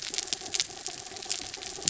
{"label": "anthrophony, mechanical", "recorder": "SoundTrap 300"}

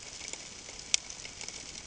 {"label": "ambient", "recorder": "HydroMoth"}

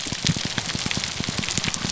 {"label": "biophony, grouper groan", "recorder": "SoundTrap 300"}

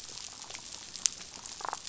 {"label": "biophony, damselfish", "recorder": "SoundTrap 500"}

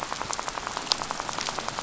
{"label": "biophony, rattle", "recorder": "SoundTrap 500"}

